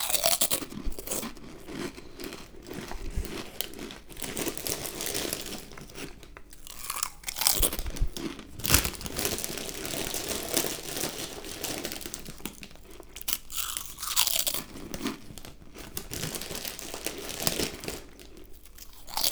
Is the person eating loudly?
yes